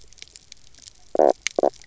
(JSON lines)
{"label": "biophony, knock croak", "recorder": "SoundTrap 300"}